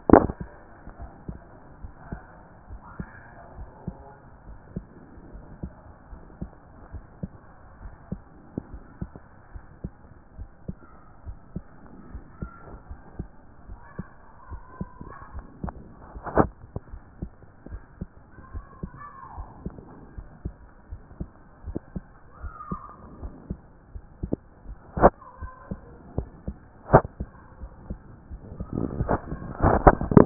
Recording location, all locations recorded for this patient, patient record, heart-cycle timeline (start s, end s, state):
aortic valve (AV)
aortic valve (AV)+pulmonary valve (PV)+tricuspid valve (TV)+mitral valve (MV)+mitral valve (MV)
#Age: Adolescent
#Sex: Female
#Height: 154.0 cm
#Weight: 44.2 kg
#Pregnancy status: False
#Murmur: Absent
#Murmur locations: nan
#Most audible location: nan
#Systolic murmur timing: nan
#Systolic murmur shape: nan
#Systolic murmur grading: nan
#Systolic murmur pitch: nan
#Systolic murmur quality: nan
#Diastolic murmur timing: nan
#Diastolic murmur shape: nan
#Diastolic murmur grading: nan
#Diastolic murmur pitch: nan
#Diastolic murmur quality: nan
#Outcome: Abnormal
#Campaign: 2014 screening campaign
0.00	0.71	unannotated
0.71	1.00	diastole
1.00	1.10	S1
1.10	1.28	systole
1.28	1.38	S2
1.38	1.82	diastole
1.82	1.92	S1
1.92	2.10	systole
2.10	2.20	S2
2.20	2.70	diastole
2.70	2.82	S1
2.82	2.98	systole
2.98	3.08	S2
3.08	3.58	diastole
3.58	3.68	S1
3.68	3.86	systole
3.86	3.96	S2
3.96	4.46	diastole
4.46	4.58	S1
4.58	4.74	systole
4.74	4.84	S2
4.84	5.34	diastole
5.34	5.44	S1
5.44	5.62	systole
5.62	5.72	S2
5.72	6.10	diastole
6.10	6.22	S1
6.22	6.40	systole
6.40	6.50	S2
6.50	6.92	diastole
6.92	7.04	S1
7.04	7.22	systole
7.22	7.30	S2
7.30	7.82	diastole
7.82	7.94	S1
7.94	8.10	systole
8.10	8.20	S2
8.20	8.70	diastole
8.70	8.82	S1
8.82	9.00	systole
9.00	9.10	S2
9.10	9.52	diastole
9.52	9.64	S1
9.64	9.82	systole
9.82	9.92	S2
9.92	10.38	diastole
10.38	10.50	S1
10.50	10.68	systole
10.68	10.76	S2
10.76	11.26	diastole
11.26	11.38	S1
11.38	11.54	systole
11.54	11.64	S2
11.64	12.12	diastole
12.12	12.24	S1
12.24	12.40	systole
12.40	12.50	S2
12.50	12.90	diastole
12.90	13.00	S1
13.00	13.18	systole
13.18	13.28	S2
13.28	13.68	diastole
13.68	13.80	S1
13.80	13.98	systole
13.98	14.06	S2
14.06	14.50	diastole
14.50	14.62	S1
14.62	14.80	systole
14.80	14.88	S2
14.88	15.34	diastole
15.34	15.46	S1
15.46	15.62	systole
15.62	15.74	S2
15.74	16.09	diastole
16.09	30.26	unannotated